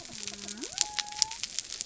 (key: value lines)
label: biophony
recorder: SoundTrap 300